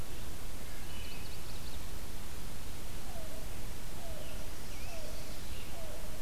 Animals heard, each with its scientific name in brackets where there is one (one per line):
Yellow-billed Cuckoo (Coccyzus americanus)
Wood Thrush (Hylocichla mustelina)
Scarlet Tanager (Piranga olivacea)
Black-capped Chickadee (Poecile atricapillus)
Chestnut-sided Warbler (Setophaga pensylvanica)